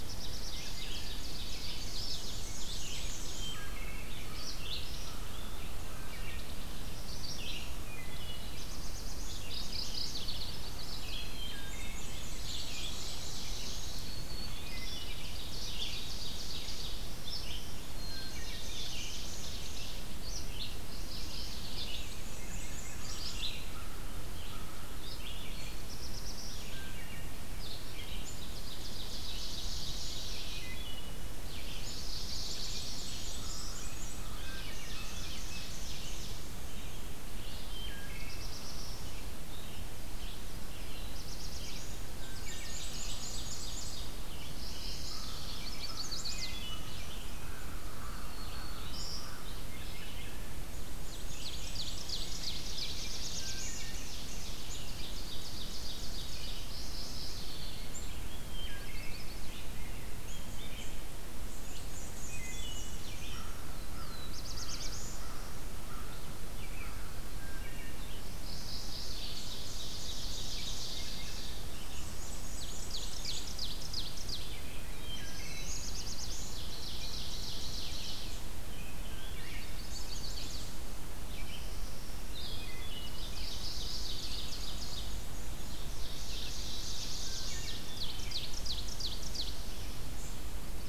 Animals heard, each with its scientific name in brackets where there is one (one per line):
Black-throated Green Warbler (Setophaga virens)
Rose-breasted Grosbeak (Pheucticus ludovicianus)
Blackburnian Warbler (Setophaga fusca)
Red-eyed Vireo (Vireo olivaceus)
American Robin (Turdus migratorius)
Ovenbird (Seiurus aurocapilla)
American Crow (Corvus brachyrhynchos)
Chestnut-sided Warbler (Setophaga pensylvanica)
Black-throated Blue Warbler (Setophaga caerulescens)
Wood Thrush (Hylocichla mustelina)
Black-and-white Warbler (Mniotilta varia)
Mourning Warbler (Geothlypis philadelphia)